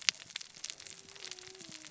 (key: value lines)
label: biophony, cascading saw
recorder: SoundTrap 600 or HydroMoth